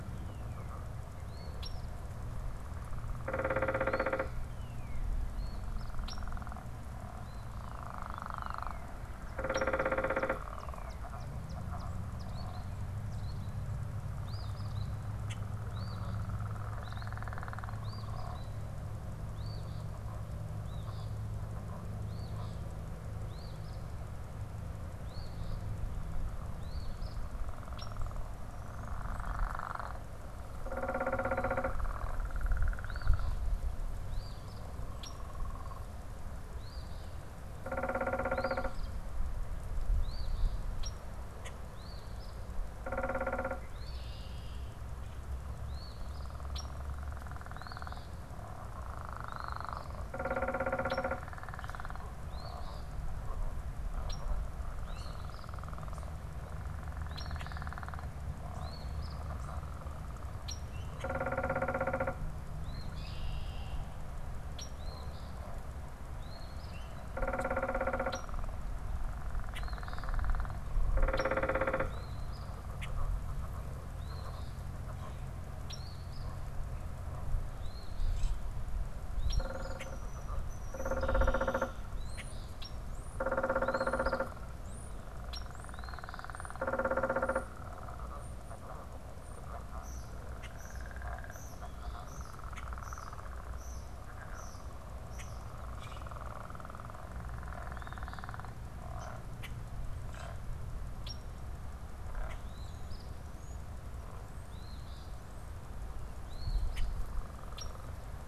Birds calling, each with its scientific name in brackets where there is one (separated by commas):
Common Grackle (Quiscalus quiscula), unidentified bird, Eastern Phoebe (Sayornis phoebe), European Starling (Sturnus vulgaris), Northern Cardinal (Cardinalis cardinalis), Red-winged Blackbird (Agelaius phoeniceus)